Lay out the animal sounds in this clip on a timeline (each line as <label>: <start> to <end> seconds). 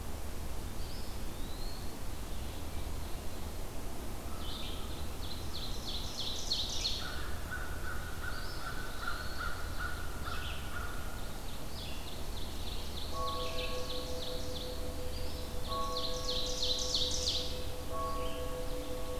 Red-eyed Vireo (Vireo olivaceus): 0.0 to 18.5 seconds
Eastern Wood-Pewee (Contopus virens): 0.5 to 2.1 seconds
Ovenbird (Seiurus aurocapilla): 5.2 to 7.2 seconds
American Crow (Corvus brachyrhynchos): 6.9 to 11.3 seconds
Eastern Wood-Pewee (Contopus virens): 8.2 to 10.0 seconds
Ovenbird (Seiurus aurocapilla): 11.0 to 15.0 seconds
Eastern Wood-Pewee (Contopus virens): 15.1 to 15.9 seconds
Ovenbird (Seiurus aurocapilla): 15.6 to 17.6 seconds